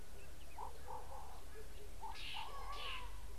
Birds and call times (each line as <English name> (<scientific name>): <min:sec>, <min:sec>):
Slate-colored Boubou (Laniarius funebris): 0:02.3